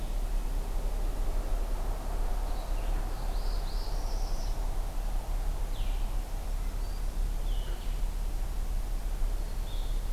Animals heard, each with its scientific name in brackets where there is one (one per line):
Northern Parula (Setophaga americana)
Red-eyed Vireo (Vireo olivaceus)
Black-throated Green Warbler (Setophaga virens)